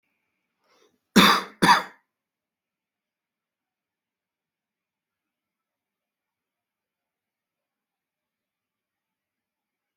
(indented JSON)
{
  "expert_labels": [
    {
      "quality": "ok",
      "cough_type": "dry",
      "dyspnea": false,
      "wheezing": false,
      "stridor": false,
      "choking": false,
      "congestion": false,
      "nothing": true,
      "diagnosis": "healthy cough",
      "severity": "pseudocough/healthy cough"
    }
  ],
  "age": 29,
  "gender": "male",
  "respiratory_condition": false,
  "fever_muscle_pain": false,
  "status": "symptomatic"
}